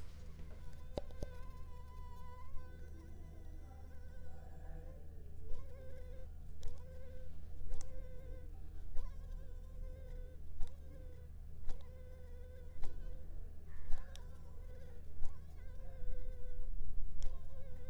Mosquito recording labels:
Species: Anopheles arabiensis; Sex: female; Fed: unfed; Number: one; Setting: cup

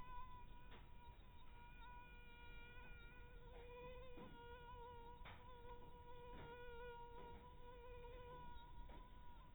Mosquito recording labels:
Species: mosquito; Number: one; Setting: cup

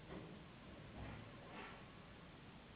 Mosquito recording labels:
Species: Anopheles gambiae s.s.; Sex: female; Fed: unfed; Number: one; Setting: insect culture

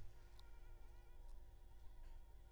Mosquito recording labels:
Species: Anopheles arabiensis; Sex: female; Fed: unfed; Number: one; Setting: cup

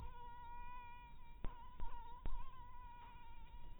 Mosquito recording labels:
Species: mosquito; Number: one; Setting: cup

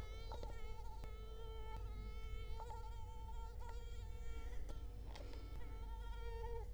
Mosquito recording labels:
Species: Culex quinquefasciatus; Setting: cup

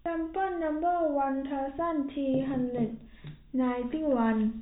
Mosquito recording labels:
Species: no mosquito; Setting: cup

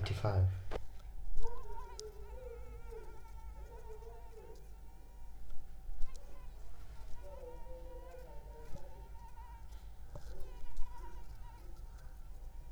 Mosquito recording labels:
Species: Anopheles arabiensis; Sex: female; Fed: unfed; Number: one; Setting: cup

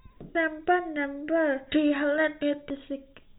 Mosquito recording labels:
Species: no mosquito; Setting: cup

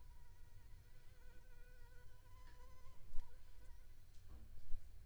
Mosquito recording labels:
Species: Anopheles arabiensis; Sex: female; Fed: unfed; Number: one; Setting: cup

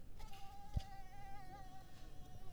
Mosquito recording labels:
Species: Mansonia africanus; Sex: female; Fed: unfed; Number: one; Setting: cup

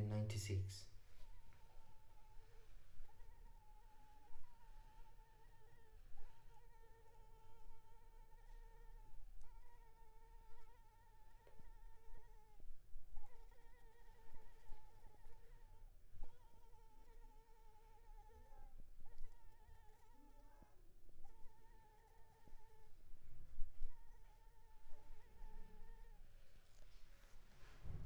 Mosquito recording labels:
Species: Anopheles arabiensis; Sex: female; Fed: unfed; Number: one; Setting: cup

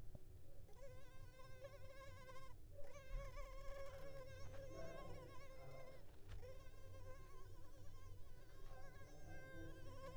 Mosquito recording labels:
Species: Culex pipiens complex; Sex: female; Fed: unfed; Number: one; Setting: cup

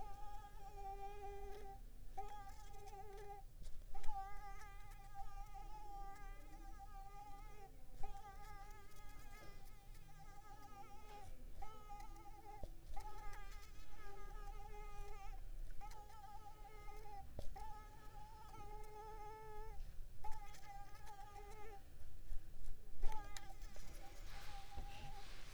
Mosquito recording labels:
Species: Mansonia uniformis; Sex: female; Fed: unfed; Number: one; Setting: cup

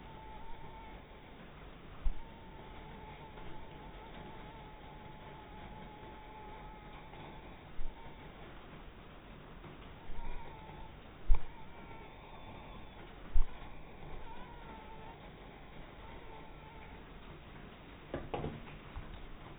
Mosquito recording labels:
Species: mosquito; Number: one; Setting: cup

